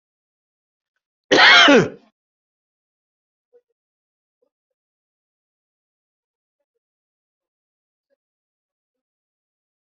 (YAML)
expert_labels:
- quality: ok
  cough_type: unknown
  dyspnea: false
  wheezing: false
  stridor: false
  choking: false
  congestion: false
  nothing: true
  diagnosis: lower respiratory tract infection
  severity: mild
age: 54
gender: male
respiratory_condition: false
fever_muscle_pain: false
status: COVID-19